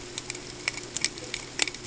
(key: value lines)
label: ambient
recorder: HydroMoth